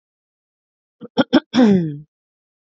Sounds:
Throat clearing